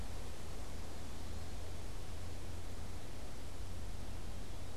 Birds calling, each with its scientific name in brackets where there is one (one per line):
Eastern Wood-Pewee (Contopus virens)